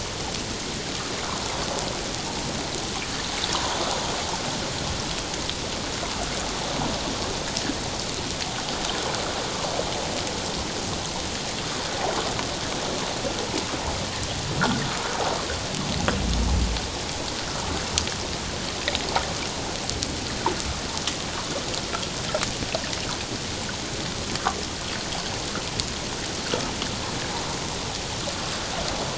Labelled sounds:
3.5	3.8	water noise, 0.88 to 1.3 kHz

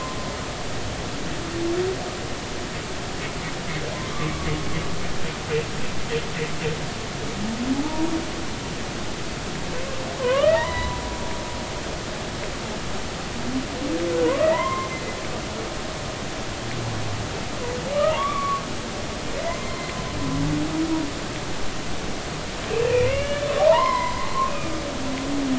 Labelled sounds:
7.8	8.1	humpback whale, 0.83 to 0.99 kHz
10.2	11.0	humpback whale, 0.83 to 4.1 kHz
14.4	14.9	humpback whale, 0.86 to 2.2 kHz
18.1	18.6	humpback whale, 0.86 to 3.6 kHz
22.7	24.8	humpback whale, 0.80 to 2.9 kHz

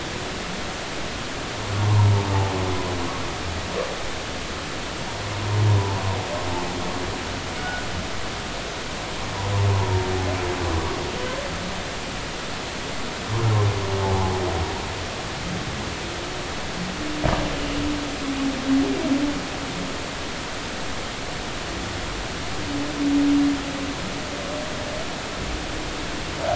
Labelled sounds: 1.9	2.1	humpback whale, 0.83 to 1.1 kHz
7.6	7.8	humpback whale, 1.4 to 1.5 kHz
14.1	14.4	humpback whale, 0.80 to 1.1 kHz

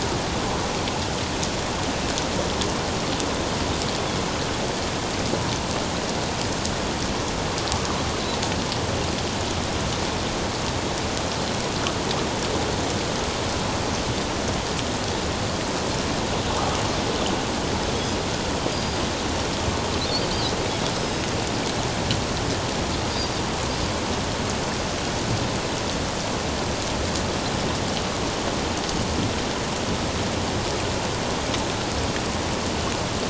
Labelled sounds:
18.7	19.0	Pacific white-sided dolphin, 4.8 to 4.9 kHz
20.9	21.2	Pacific white-sided dolphin, 5.1 to 5.2 kHz

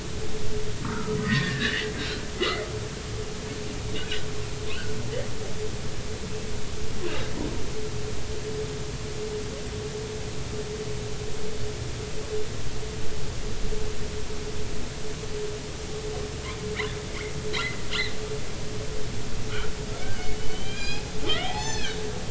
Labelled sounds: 0.8	1.9	humpback whale, 0.90 to 2.0 kHz
2.3	2.7	humpback whale, 2.0 to 2.1 kHz
17.1	17.8	humpback whale, 1.8 to 4.3 kHz
20.0	22.0	humpback whale, 0.80 to 6.3 kHz

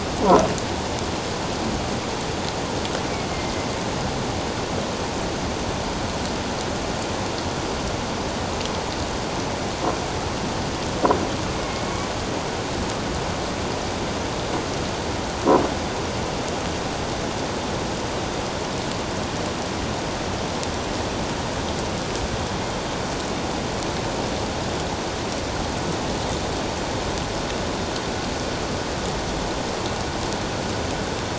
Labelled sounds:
11.5	11.9	killer whale, northern resident, A clan, 2.1 to 2.2 kHz

